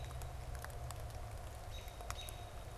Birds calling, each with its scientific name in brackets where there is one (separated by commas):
American Robin (Turdus migratorius)